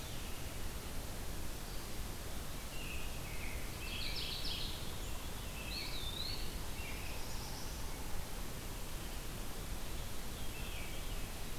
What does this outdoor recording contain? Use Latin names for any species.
Turdus migratorius, Geothlypis philadelphia, Catharus fuscescens, Contopus virens, Setophaga caerulescens